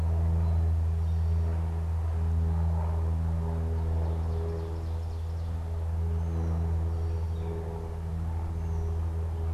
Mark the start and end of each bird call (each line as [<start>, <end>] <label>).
[3.55, 5.75] Ovenbird (Seiurus aurocapilla)
[5.95, 9.45] Gray Catbird (Dumetella carolinensis)